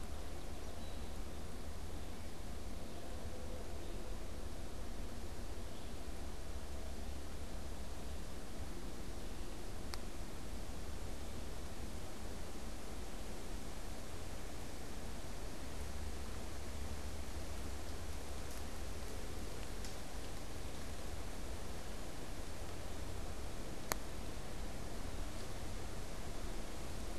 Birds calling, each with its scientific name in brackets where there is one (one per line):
Song Sparrow (Melospiza melodia)